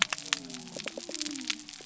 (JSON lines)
{"label": "biophony", "recorder": "SoundTrap 300"}